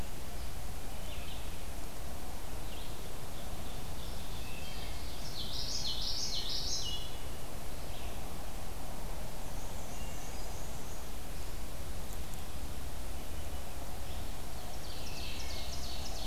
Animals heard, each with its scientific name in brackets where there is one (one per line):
Wood Thrush (Hylocichla mustelina)
Common Yellowthroat (Geothlypis trichas)
Ovenbird (Seiurus aurocapilla)
Black-and-white Warbler (Mniotilta varia)
Red-eyed Vireo (Vireo olivaceus)